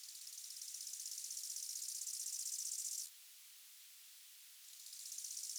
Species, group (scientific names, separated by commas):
Chorthippus biguttulus, Orthoptera